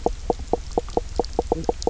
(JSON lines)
{"label": "biophony, knock croak", "recorder": "SoundTrap 300"}